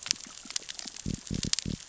{"label": "biophony", "recorder": "SoundTrap 600 or HydroMoth"}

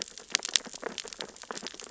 {"label": "biophony, sea urchins (Echinidae)", "recorder": "SoundTrap 600 or HydroMoth"}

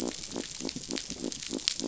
{"label": "biophony", "recorder": "SoundTrap 500"}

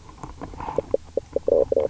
{"label": "biophony, knock croak", "recorder": "SoundTrap 300"}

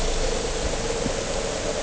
{"label": "anthrophony, boat engine", "recorder": "HydroMoth"}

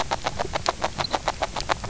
{"label": "biophony, grazing", "recorder": "SoundTrap 300"}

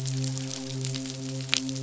{"label": "biophony, midshipman", "recorder": "SoundTrap 500"}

